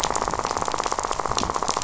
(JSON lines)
{"label": "biophony, rattle", "recorder": "SoundTrap 500"}